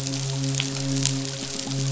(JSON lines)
{"label": "biophony, midshipman", "recorder": "SoundTrap 500"}
{"label": "biophony", "recorder": "SoundTrap 500"}